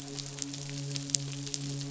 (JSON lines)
{"label": "biophony, midshipman", "recorder": "SoundTrap 500"}